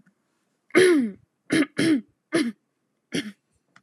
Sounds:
Throat clearing